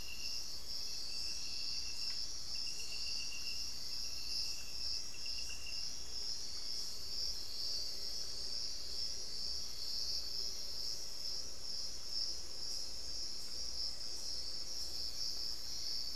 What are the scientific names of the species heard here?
Momotus momota, Turdus hauxwelli, unidentified bird